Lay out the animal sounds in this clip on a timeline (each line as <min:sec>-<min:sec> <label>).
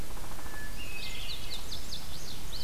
0:00.0-0:02.6 Red-eyed Vireo (Vireo olivaceus)
0:00.1-0:00.6 Downy Woodpecker (Dryobates pubescens)
0:00.3-0:01.7 Hermit Thrush (Catharus guttatus)
0:00.8-0:02.6 Indigo Bunting (Passerina cyanea)